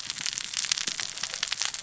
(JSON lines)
{"label": "biophony, cascading saw", "recorder": "SoundTrap 600 or HydroMoth"}